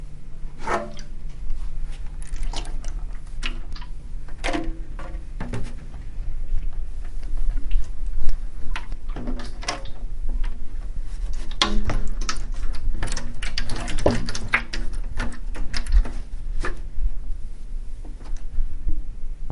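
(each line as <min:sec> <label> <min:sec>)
0:00.0 Continuous sound of water droplets sloshing in a near-empty water jug. 0:19.5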